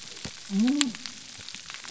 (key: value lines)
label: biophony
recorder: SoundTrap 300